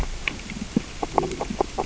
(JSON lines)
{"label": "biophony, grazing", "recorder": "SoundTrap 600 or HydroMoth"}